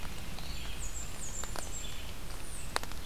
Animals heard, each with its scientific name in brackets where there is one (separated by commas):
Blackburnian Warbler (Setophaga fusca), American Robin (Turdus migratorius), Red-eyed Vireo (Vireo olivaceus)